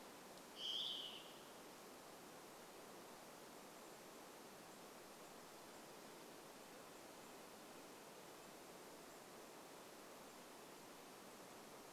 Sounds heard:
Varied Thrush song

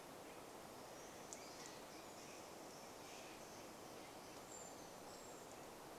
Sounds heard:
Brown Creeper song, unidentified sound, Steller's Jay call

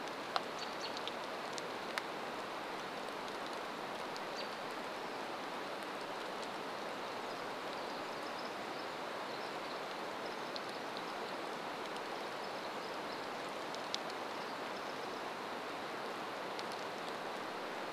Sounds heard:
Pacific Wren song, American Robin call, rain

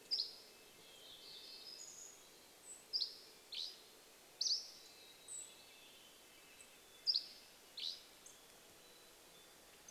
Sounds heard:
insect buzz, Mountain Chickadee song, Red-breasted Nuthatch song, Dark-eyed Junco call, warbler song, Dusky Flycatcher song, Hermit Thrush call

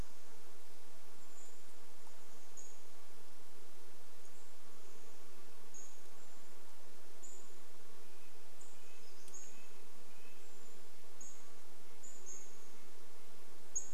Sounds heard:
Pacific-slope Flycatcher call, Red-breasted Nuthatch song, Brown Creeper call, insect buzz

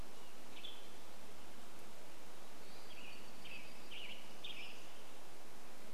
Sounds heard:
Western Tanager song, Western Tanager call, warbler song, Pacific-slope Flycatcher call

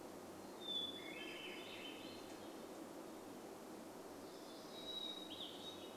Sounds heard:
Swainson's Thrush song, Hermit Thrush song, vehicle engine, warbler song

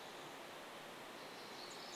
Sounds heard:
Pacific Wren song

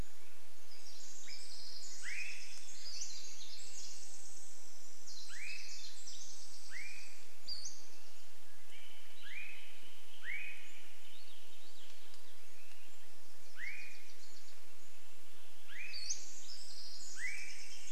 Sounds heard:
Swainson's Thrush call, unidentified sound, Pacific-slope Flycatcher call, Pacific Wren song, Wilson's Warbler song, Swainson's Thrush song

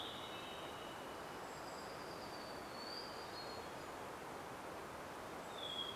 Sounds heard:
Varied Thrush song, Golden-crowned Kinglet call, Hermit Thrush song, warbler song

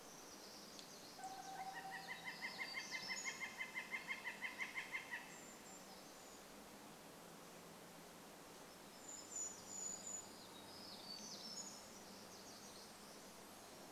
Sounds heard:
truck beep, Northern Flicker call, warbler song, Brown Creeper call

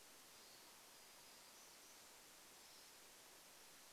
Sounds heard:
Pine Siskin call, Golden-crowned Kinglet song

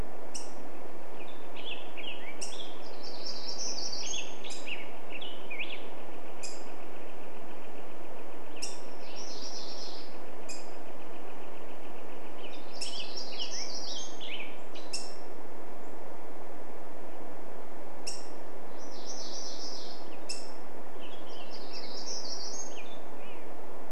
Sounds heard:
Black-headed Grosbeak song, Hermit Warbler song, Northern Flicker call, Black-headed Grosbeak call, MacGillivray's Warbler song

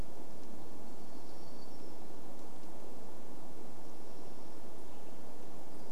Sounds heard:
warbler song, Western Tanager song

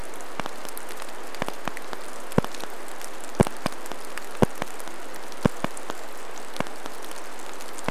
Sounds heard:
rain, Golden-crowned Kinglet song

